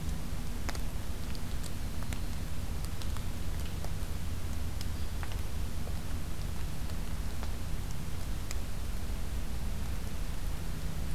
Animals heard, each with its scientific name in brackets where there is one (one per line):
Hairy Woodpecker (Dryobates villosus)
Black-throated Green Warbler (Setophaga virens)